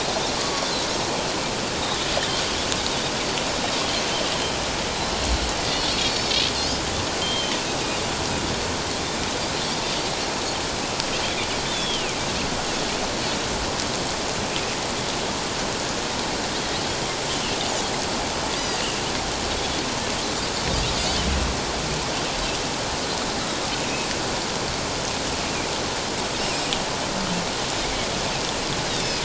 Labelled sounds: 2.2	2.4	Pacific white-sided dolphin, 3.0 to 3.4 kHz
7.2	7.6	Pacific white-sided dolphin, 3.0 to 3.3 kHz
9.0	9.2	Pacific white-sided dolphin, 3.4 to 3.7 kHz
11.6	12.2	Pacific white-sided dolphin, 2.1 to 3.7 kHz
17.3	17.6	Pacific white-sided dolphin, 2.7 to 3.2 kHz
18.6	18.8	Pacific white-sided dolphin, 4.6 to 5.0 kHz
27.8	29.2	Pacific white-sided dolphin, 2.0 to 5.4 kHz

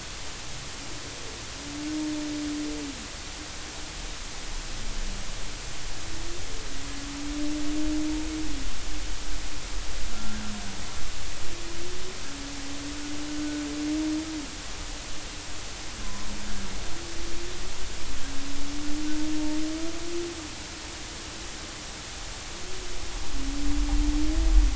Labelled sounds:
10.1	10.4	humpback whale, 1.3 to 1.5 kHz
16.0	16.3	humpback whale, 0.96 to 1.1 kHz

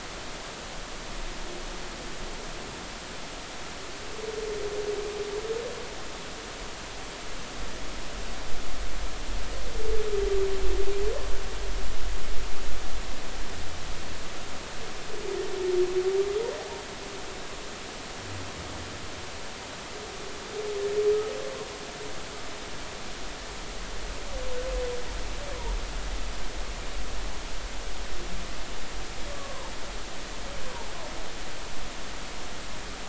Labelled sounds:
29.3	29.7	humpback whale, 0.83 to 1.2 kHz

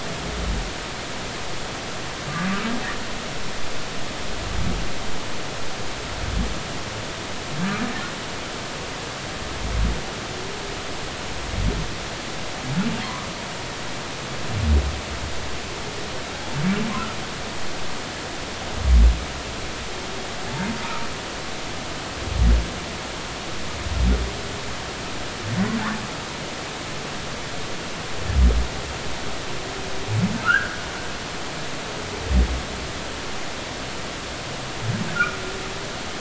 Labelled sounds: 30.4	30.8	humpback whale, 1.2 to 1.7 kHz
35.1	35.4	humpback whale, 1.2 to 1.5 kHz

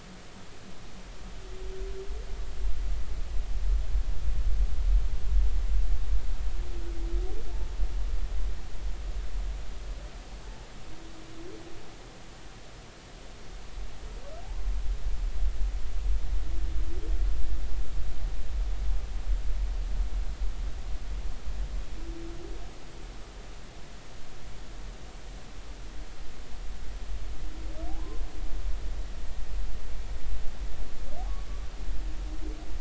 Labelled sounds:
14.4	14.7	humpback whale, 0.80 to 1.1 kHz
27.9	28.2	humpback whale, 0.80 to 1.1 kHz

